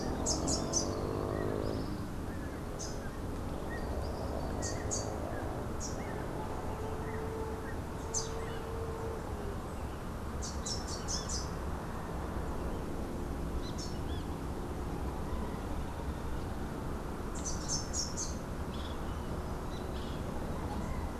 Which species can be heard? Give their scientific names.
Basileuterus rufifrons, Campylorhynchus rufinucha